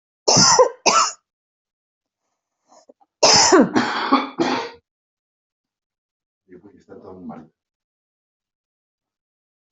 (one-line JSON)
{"expert_labels": [{"quality": "ok", "cough_type": "dry", "dyspnea": false, "wheezing": false, "stridor": false, "choking": false, "congestion": false, "nothing": true, "diagnosis": "COVID-19", "severity": "mild"}, {"quality": "poor", "cough_type": "dry", "dyspnea": false, "wheezing": false, "stridor": false, "choking": false, "congestion": false, "nothing": true, "diagnosis": "upper respiratory tract infection", "severity": "unknown"}, {"quality": "good", "cough_type": "dry", "dyspnea": false, "wheezing": false, "stridor": false, "choking": false, "congestion": false, "nothing": true, "diagnosis": "upper respiratory tract infection", "severity": "mild"}, {"quality": "good", "cough_type": "dry", "dyspnea": false, "wheezing": false, "stridor": false, "choking": false, "congestion": false, "nothing": true, "diagnosis": "upper respiratory tract infection", "severity": "mild"}], "age": 50, "gender": "female", "respiratory_condition": false, "fever_muscle_pain": true, "status": "symptomatic"}